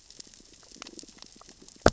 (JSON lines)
{"label": "biophony, grazing", "recorder": "SoundTrap 600 or HydroMoth"}